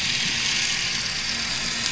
{"label": "anthrophony, boat engine", "recorder": "SoundTrap 500"}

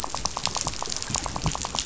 {"label": "biophony, rattle", "recorder": "SoundTrap 500"}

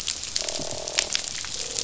{"label": "biophony, croak", "recorder": "SoundTrap 500"}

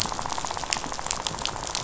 {"label": "biophony, rattle", "recorder": "SoundTrap 500"}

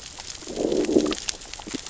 {"label": "biophony, growl", "recorder": "SoundTrap 600 or HydroMoth"}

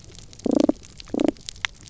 {"label": "biophony, damselfish", "recorder": "SoundTrap 300"}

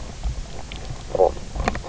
{"label": "biophony, knock croak", "recorder": "SoundTrap 300"}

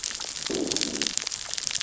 {"label": "biophony, growl", "recorder": "SoundTrap 600 or HydroMoth"}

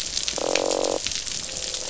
{"label": "biophony, croak", "recorder": "SoundTrap 500"}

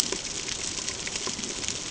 {"label": "ambient", "recorder": "HydroMoth"}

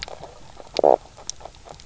{"label": "biophony, knock croak", "recorder": "SoundTrap 300"}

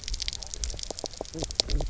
{"label": "biophony, knock croak", "recorder": "SoundTrap 300"}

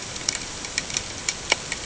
{"label": "ambient", "recorder": "HydroMoth"}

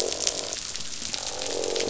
{"label": "biophony, croak", "recorder": "SoundTrap 500"}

